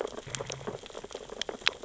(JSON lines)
{"label": "biophony, sea urchins (Echinidae)", "recorder": "SoundTrap 600 or HydroMoth"}